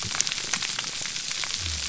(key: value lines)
label: biophony
recorder: SoundTrap 300